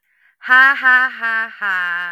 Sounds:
Laughter